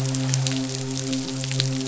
{"label": "biophony, midshipman", "recorder": "SoundTrap 500"}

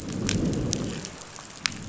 {"label": "biophony, growl", "recorder": "SoundTrap 500"}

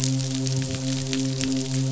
{"label": "biophony, midshipman", "recorder": "SoundTrap 500"}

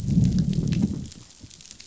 {"label": "biophony, growl", "recorder": "SoundTrap 500"}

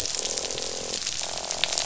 {"label": "biophony, croak", "recorder": "SoundTrap 500"}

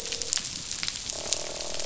{"label": "biophony, croak", "recorder": "SoundTrap 500"}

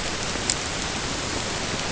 {"label": "ambient", "recorder": "HydroMoth"}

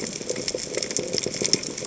{"label": "biophony, chatter", "recorder": "HydroMoth"}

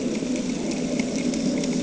{"label": "anthrophony, boat engine", "recorder": "HydroMoth"}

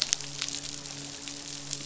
{"label": "biophony, midshipman", "recorder": "SoundTrap 500"}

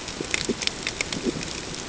{"label": "ambient", "recorder": "HydroMoth"}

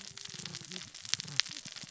{"label": "biophony, cascading saw", "recorder": "SoundTrap 600 or HydroMoth"}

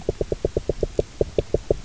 {"label": "biophony, knock", "recorder": "SoundTrap 300"}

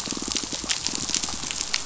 {"label": "biophony, pulse", "recorder": "SoundTrap 500"}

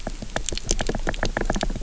{"label": "biophony", "recorder": "SoundTrap 300"}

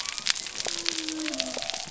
{"label": "biophony", "recorder": "SoundTrap 300"}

